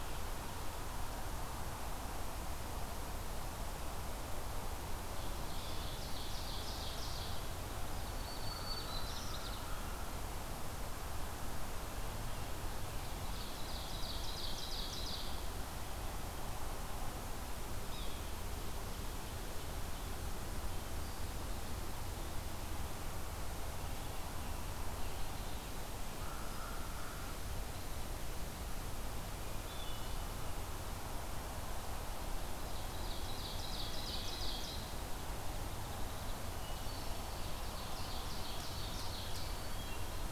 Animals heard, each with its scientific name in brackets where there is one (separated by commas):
American Crow (Corvus brachyrhynchos), Black-throated Green Warbler (Setophaga virens), Yellow-bellied Sapsucker (Sphyrapicus varius), Ovenbird (Seiurus aurocapilla), Hermit Thrush (Catharus guttatus), Wood Thrush (Hylocichla mustelina)